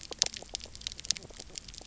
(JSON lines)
{"label": "biophony, knock croak", "recorder": "SoundTrap 300"}